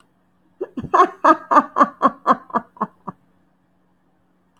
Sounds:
Laughter